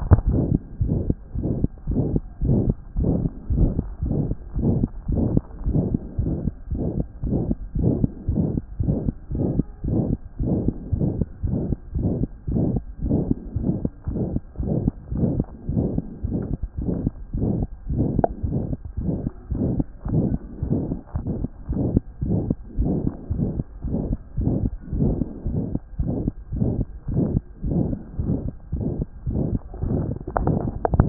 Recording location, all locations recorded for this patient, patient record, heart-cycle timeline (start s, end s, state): pulmonary valve (PV)
aortic valve (AV)+pulmonary valve (PV)+tricuspid valve (TV)+mitral valve (MV)
#Age: Child
#Sex: Male
#Height: 115.0 cm
#Weight: 17.1 kg
#Pregnancy status: False
#Murmur: Present
#Murmur locations: aortic valve (AV)+mitral valve (MV)+pulmonary valve (PV)+tricuspid valve (TV)
#Most audible location: pulmonary valve (PV)
#Systolic murmur timing: Mid-systolic
#Systolic murmur shape: Diamond
#Systolic murmur grading: III/VI or higher
#Systolic murmur pitch: Medium
#Systolic murmur quality: Harsh
#Diastolic murmur timing: nan
#Diastolic murmur shape: nan
#Diastolic murmur grading: nan
#Diastolic murmur pitch: nan
#Diastolic murmur quality: nan
#Outcome: Normal
#Campaign: 2014 screening campaign
0.00	0.82	unannotated
0.82	0.95	S1
0.95	1.06	systole
1.06	1.16	S2
1.16	1.38	diastole
1.38	1.50	S1
1.50	1.60	systole
1.60	1.68	S2
1.68	1.90	diastole
1.90	2.02	S1
2.02	2.12	systole
2.12	2.20	S2
2.20	2.43	diastole
2.43	2.55	S1
2.55	2.67	systole
2.67	2.75	S2
2.75	2.98	diastole
2.98	3.10	S1
3.10	3.22	systole
3.22	3.29	S2
3.29	3.52	diastole
3.52	3.63	S1
3.63	3.78	systole
3.78	3.86	S2
3.86	4.03	diastole
4.03	4.14	S1
4.14	4.27	systole
4.27	4.34	S2
4.34	4.56	diastole
4.56	31.09	unannotated